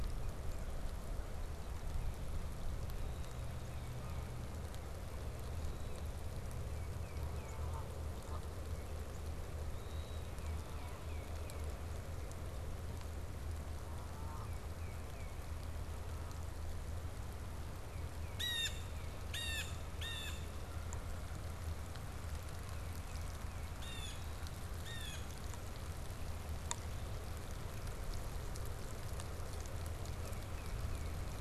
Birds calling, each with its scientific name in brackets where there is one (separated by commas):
Red-winged Blackbird (Agelaius phoeniceus), Canada Goose (Branta canadensis), Tufted Titmouse (Baeolophus bicolor), Blue Jay (Cyanocitta cristata)